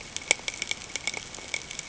{"label": "ambient", "recorder": "HydroMoth"}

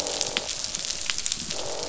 {"label": "biophony, croak", "recorder": "SoundTrap 500"}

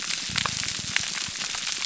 {"label": "biophony, pulse", "recorder": "SoundTrap 300"}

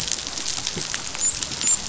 {"label": "biophony, dolphin", "recorder": "SoundTrap 500"}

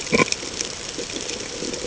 {"label": "ambient", "recorder": "HydroMoth"}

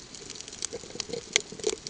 {"label": "ambient", "recorder": "HydroMoth"}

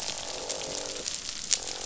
{"label": "biophony, croak", "recorder": "SoundTrap 500"}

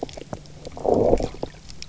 {"label": "biophony, low growl", "recorder": "SoundTrap 300"}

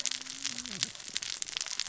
{"label": "biophony, cascading saw", "recorder": "SoundTrap 600 or HydroMoth"}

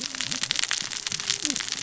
{"label": "biophony, cascading saw", "recorder": "SoundTrap 600 or HydroMoth"}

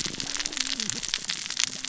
{"label": "biophony, cascading saw", "recorder": "SoundTrap 600 or HydroMoth"}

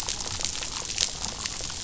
{"label": "biophony, damselfish", "recorder": "SoundTrap 500"}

